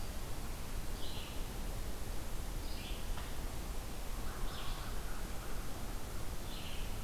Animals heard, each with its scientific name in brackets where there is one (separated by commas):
Red-eyed Vireo (Vireo olivaceus)